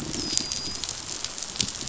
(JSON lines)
{"label": "biophony, dolphin", "recorder": "SoundTrap 500"}